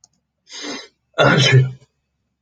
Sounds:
Sneeze